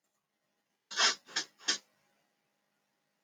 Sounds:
Sniff